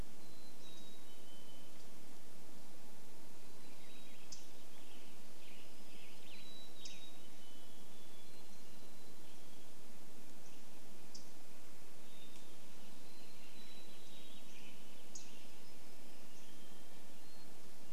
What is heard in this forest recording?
Mountain Chickadee song, Warbling Vireo song, Western Tanager song, unidentified bird chip note, Hermit Thrush song, Hammond's Flycatcher song